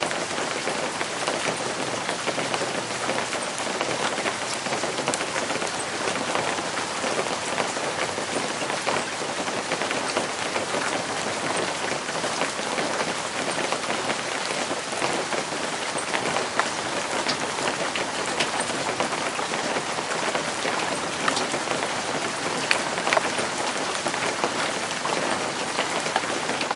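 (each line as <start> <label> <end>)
0.0 Heavy rain is pouring. 26.8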